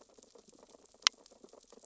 {"label": "biophony, sea urchins (Echinidae)", "recorder": "SoundTrap 600 or HydroMoth"}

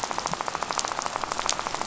{"label": "biophony, rattle", "recorder": "SoundTrap 500"}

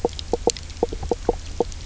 {"label": "biophony, knock croak", "recorder": "SoundTrap 300"}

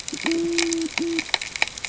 {"label": "ambient", "recorder": "HydroMoth"}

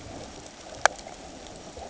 {"label": "ambient", "recorder": "HydroMoth"}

